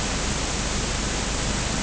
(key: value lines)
label: anthrophony, boat engine
recorder: HydroMoth